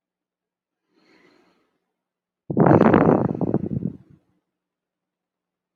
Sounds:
Sigh